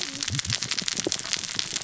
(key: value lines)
label: biophony, cascading saw
recorder: SoundTrap 600 or HydroMoth